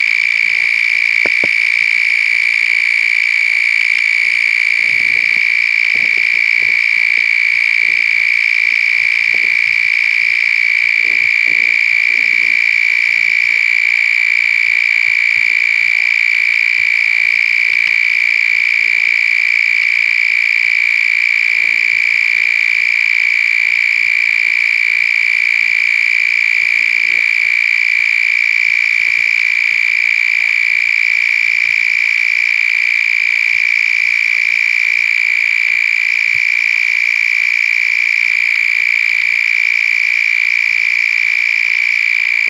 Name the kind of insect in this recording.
orthopteran